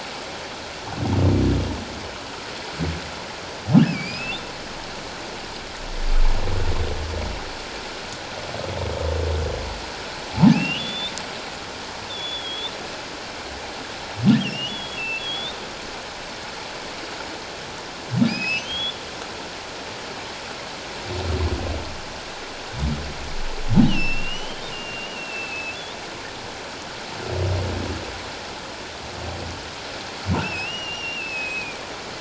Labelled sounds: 3.8	4.4	humpback whale, 2.2 to 5.3 kHz
10.5	11.1	humpback whale, 2.3 to 3.8 kHz
12.1	12.7	humpback whale, 3.2 to 3.8 kHz
14.3	15.6	humpback whale, 2.5 to 3.8 kHz
18.3	19.0	humpback whale, 2.2 to 5.3 kHz
23.9	25.8	humpback whale, 2.5 to 3.2 kHz
30.4	31.8	humpback whale, 2.2 to 5.9 kHz

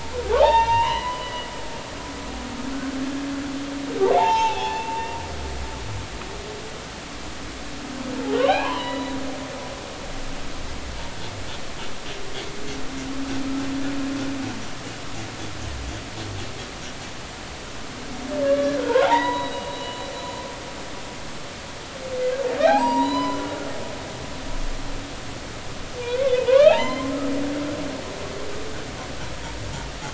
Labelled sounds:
0.0	2.3	humpback whale, 0.80 to 4.1 kHz
4.1	5.1	humpback whale, 0.80 to 3.7 kHz
8.3	9.2	humpback whale, 0.80 to 4.0 kHz
18.4	20.1	humpback whale, 0.80 to 4.0 kHz
22.6	23.4	humpback whale, 0.80 to 7.7 kHz
26.5	27.1	humpback whale, 0.80 to 4.2 kHz

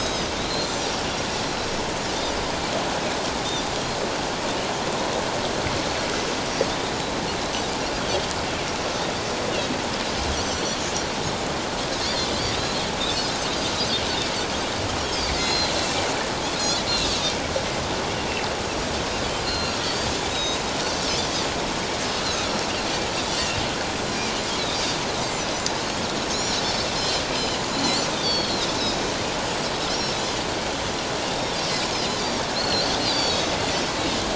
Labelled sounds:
10.4	10.8	Pacific white-sided dolphin, 4.2 to 6.2 kHz
11.2	11.5	Pacific white-sided dolphin, 3.5 to 3.7 kHz
12.6	13.4	Pacific white-sided dolphin, 3.7 to 4.5 kHz
15.4	15.8	Pacific white-sided dolphin, 4.0 to 5.2 kHz
16.5	17.2	Pacific white-sided dolphin, 2.5 to 4.6 kHz
19.4	20.6	Pacific white-sided dolphin, 3.7 to 7.0 kHz
22.2	22.7	Pacific white-sided dolphin, 3.7 to 5.6 kHz
23.3	23.6	Pacific white-sided dolphin, 2.7 to 3.0 kHz
24.1	24.4	Pacific white-sided dolphin, 2.2 to 2.5 kHz
25.2	25.5	Pacific white-sided dolphin, 7.0 to 7.5 kHz
26.3	27.6	Pacific white-sided dolphin, 2.9 to 5.6 kHz
28.1	28.7	Pacific white-sided dolphin, 3.2 to 4.8 kHz
29.9	30.2	Pacific white-sided dolphin, 5.0 to 5.7 kHz
32.5	33.4	Pacific white-sided dolphin, 3.2 to 4.8 kHz

